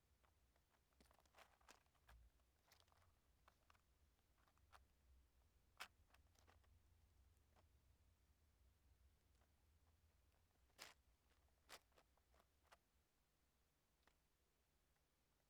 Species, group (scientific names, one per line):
Tettigonia viridissima
Orthoptera